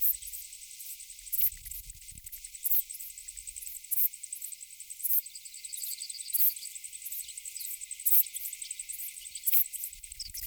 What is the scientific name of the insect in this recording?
Ephippiger ephippiger